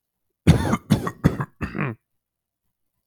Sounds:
Cough